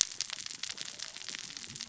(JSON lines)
{"label": "biophony, cascading saw", "recorder": "SoundTrap 600 or HydroMoth"}